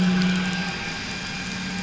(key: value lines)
label: anthrophony, boat engine
recorder: SoundTrap 500